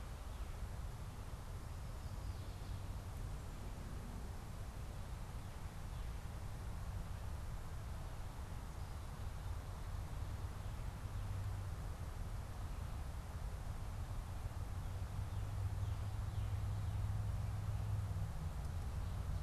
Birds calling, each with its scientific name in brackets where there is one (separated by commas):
Northern Cardinal (Cardinalis cardinalis)